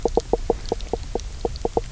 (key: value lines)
label: biophony, knock croak
recorder: SoundTrap 300